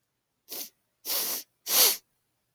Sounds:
Sniff